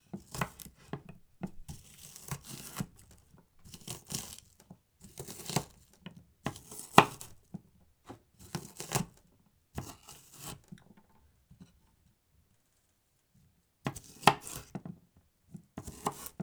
Is the person talking?
no